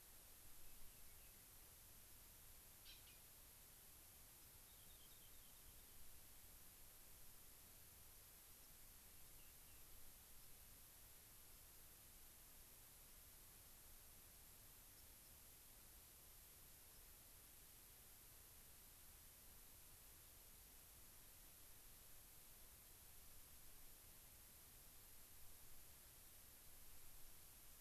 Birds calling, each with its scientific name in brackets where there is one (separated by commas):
Rock Wren (Salpinctes obsoletus), White-crowned Sparrow (Zonotrichia leucophrys)